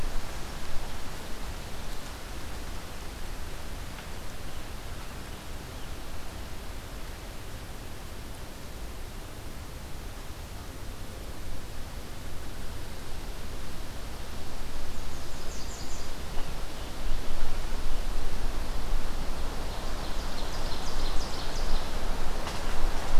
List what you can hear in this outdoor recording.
American Redstart, Ovenbird